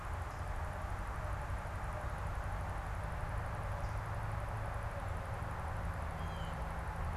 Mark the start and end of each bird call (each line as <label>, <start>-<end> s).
Blue Jay (Cyanocitta cristata), 5.9-6.7 s